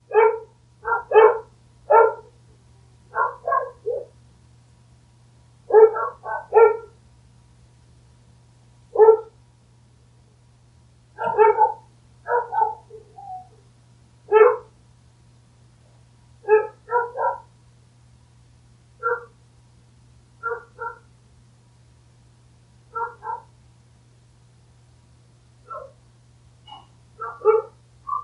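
A dog barks repeatedly. 0:00.0 - 0:04.1
A dog barks repeatedly. 0:05.7 - 0:07.0
A dog is barking. 0:08.9 - 0:09.4
A dog barks repeatedly. 0:11.1 - 0:14.8
A dog barks repeatedly. 0:16.3 - 0:17.5
A dog barks repeatedly. 0:18.9 - 0:21.0
A dog barks repeatedly. 0:22.9 - 0:23.5
A dog barks repeatedly. 0:25.5 - 0:28.2

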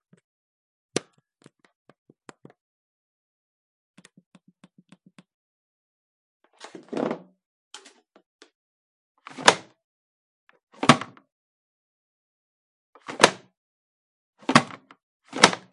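Someone is gently pressing some buttons on a machine. 0:00.9 - 0:02.6
Someone is gently pressing some buttons on a machine. 0:03.9 - 0:05.3
Someone is rubbing a plate, producing a clattering sound. 0:06.4 - 0:07.4
Someone is pressing the spacebar on a keyboard. 0:07.7 - 0:08.5
Someone is barring a door. 0:09.2 - 0:09.8
A door is being unbarred inside a room. 0:10.7 - 0:11.1
Someone is barring a door. 0:13.0 - 0:13.5
Someone is barring a door. 0:14.5 - 0:14.9
A door is being unbarred inside a room. 0:15.3 - 0:15.7

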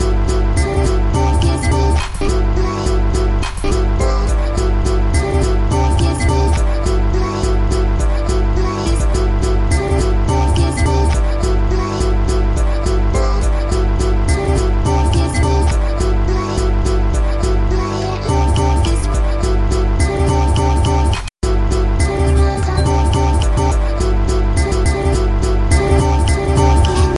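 Groovy music with a female voice singing. 0:00.0 - 0:27.2

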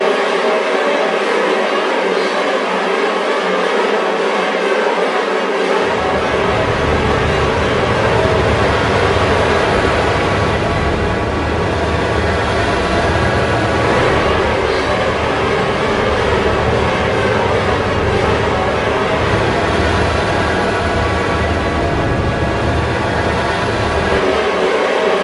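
Constant high-pitched buzzing. 0:00.0 - 0:25.2
Rumbling sound playing loudly and constantly. 0:07.4 - 0:25.2

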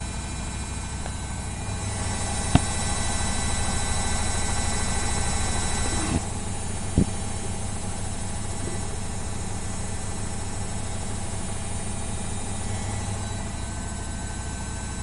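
A washing machine makes noise during its spin cycle. 0:00.1 - 0:15.0

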